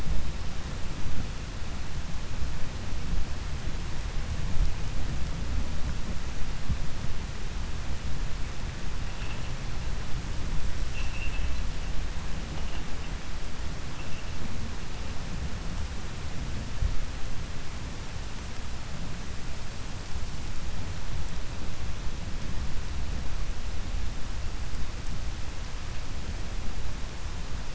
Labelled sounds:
10.8	11.6	vessel noise, 2.3 to 4.1 kHz

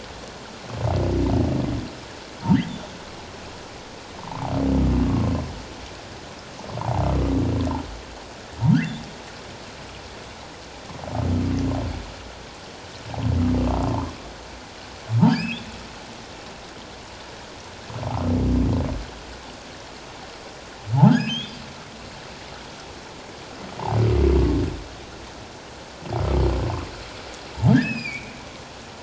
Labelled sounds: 4.2	4.5	humpback whale, 0.78 to 1.2 kHz
5.1	5.3	humpback whale, 1.0 to 1.2 kHz
8.7	9.0	humpback whale, 1.2 to 2.1 kHz
13.9	14.1	humpback whale, 0.84 to 1.2 kHz
15.3	15.6	humpback whale, 2.2 to 5.2 kHz
21.1	21.6	humpback whale, 1.2 to 5.2 kHz
27.8	28.3	humpback whale, 2.2 to 5.2 kHz

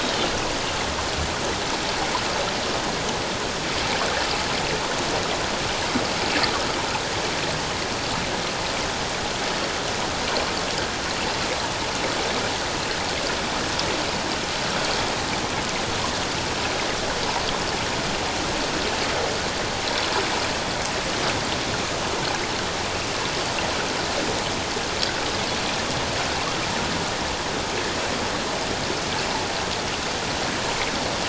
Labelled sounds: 0.0	0.3	Pacific white-sided dolphin, 3.4 to 3.8 kHz

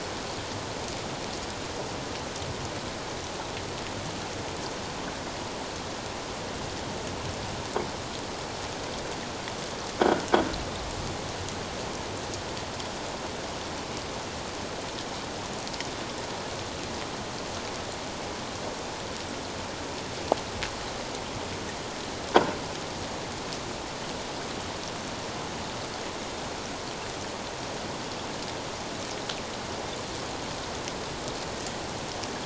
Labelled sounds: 10.0	10.3	croaking sound likely from a nearby submerged object, 1.3 to 1.6 kHz

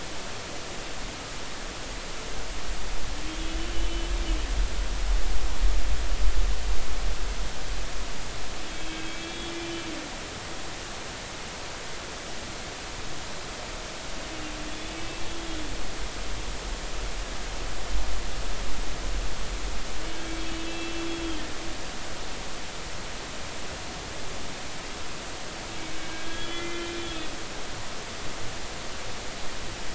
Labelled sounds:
3.7	4.1	humpback whale, 2.9 to 3.1 kHz
9.2	9.8	humpback whale, 2.3 to 3.7 kHz
14.7	15.0	humpback whale, 3.3 to 3.6 kHz
16.0	16.2	humpback whale, 2.6 to 2.7 kHz
20.4	21.1	humpback whale, 2.6 to 3.4 kHz
25.9	27.0	humpback whale, 1.9 to 3.5 kHz

